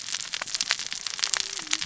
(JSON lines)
{"label": "biophony, cascading saw", "recorder": "SoundTrap 600 or HydroMoth"}